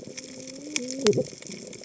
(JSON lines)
{"label": "biophony, cascading saw", "recorder": "HydroMoth"}